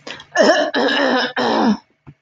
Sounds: Throat clearing